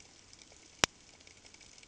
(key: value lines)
label: ambient
recorder: HydroMoth